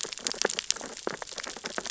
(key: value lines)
label: biophony, sea urchins (Echinidae)
recorder: SoundTrap 600 or HydroMoth